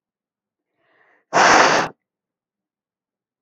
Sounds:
Sniff